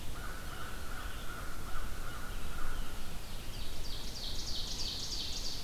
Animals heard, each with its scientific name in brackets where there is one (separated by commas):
American Crow (Corvus brachyrhynchos), Ovenbird (Seiurus aurocapilla), Red-eyed Vireo (Vireo olivaceus)